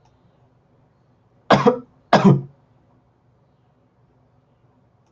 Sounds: Cough